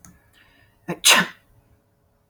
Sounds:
Sneeze